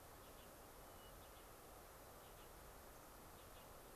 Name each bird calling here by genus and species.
Catharus guttatus